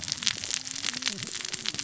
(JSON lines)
{"label": "biophony, cascading saw", "recorder": "SoundTrap 600 or HydroMoth"}